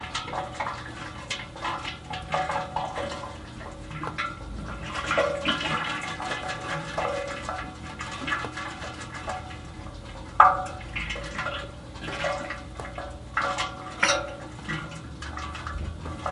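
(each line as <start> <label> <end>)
0.0 Water drips inside a boiler, creating a repetitive metallic sound with a slight echo. 16.3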